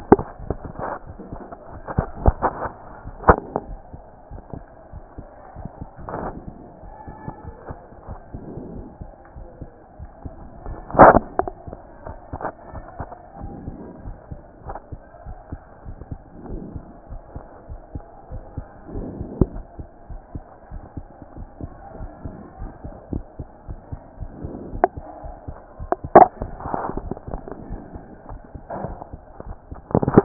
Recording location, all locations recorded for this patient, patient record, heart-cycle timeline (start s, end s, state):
aortic valve (AV)
aortic valve (AV)+pulmonary valve (PV)+tricuspid valve (TV)+mitral valve (MV)
#Age: Child
#Sex: Male
#Height: 124.0 cm
#Weight: 23.2 kg
#Pregnancy status: False
#Murmur: Absent
#Murmur locations: nan
#Most audible location: nan
#Systolic murmur timing: nan
#Systolic murmur shape: nan
#Systolic murmur grading: nan
#Systolic murmur pitch: nan
#Systolic murmur quality: nan
#Diastolic murmur timing: nan
#Diastolic murmur shape: nan
#Diastolic murmur grading: nan
#Diastolic murmur pitch: nan
#Diastolic murmur quality: nan
#Outcome: Abnormal
#Campaign: 2014 screening campaign
0.00	12.74	unannotated
12.74	12.84	S1
12.84	12.98	systole
12.98	13.08	S2
13.08	13.40	diastole
13.40	13.54	S1
13.54	13.66	systole
13.66	13.76	S2
13.76	14.04	diastole
14.04	14.16	S1
14.16	14.30	systole
14.30	14.40	S2
14.40	14.66	diastole
14.66	14.78	S1
14.78	14.92	systole
14.92	15.00	S2
15.00	15.26	diastole
15.26	15.38	S1
15.38	15.50	systole
15.50	15.60	S2
15.60	15.86	diastole
15.86	15.96	S1
15.96	16.10	systole
16.10	16.20	S2
16.20	16.48	diastole
16.48	16.62	S1
16.62	16.74	systole
16.74	16.84	S2
16.84	17.10	diastole
17.10	17.22	S1
17.22	17.34	systole
17.34	17.44	S2
17.44	17.68	diastole
17.68	17.80	S1
17.80	17.94	systole
17.94	18.02	S2
18.02	18.32	diastole
18.32	18.44	S1
18.44	18.56	systole
18.56	18.66	S2
18.66	18.94	diastole
18.94	19.08	S1
19.08	19.18	systole
19.18	19.30	S2
19.30	19.52	diastole
19.52	19.64	S1
19.64	19.78	systole
19.78	19.86	S2
19.86	20.10	diastole
20.10	20.20	S1
20.20	20.34	systole
20.34	20.44	S2
20.44	20.72	diastole
20.72	20.82	S1
20.82	20.96	systole
20.96	21.06	S2
21.06	21.36	diastole
21.36	21.48	S1
21.48	21.62	systole
21.62	21.70	S2
21.70	21.98	diastole
21.98	22.10	S1
22.10	22.24	systole
22.24	22.34	S2
22.34	22.60	diastole
22.60	22.72	S1
22.72	22.84	systole
22.84	22.94	S2
22.94	23.12	diastole
23.12	23.24	S1
23.24	23.38	systole
23.38	23.48	S2
23.48	23.68	diastole
23.68	23.80	S1
23.80	23.92	systole
23.92	24.00	S2
24.00	24.20	diastole
24.20	24.32	S1
24.32	24.42	systole
24.42	24.54	S2
24.54	24.72	diastole
24.72	30.24	unannotated